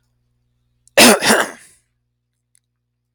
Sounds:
Throat clearing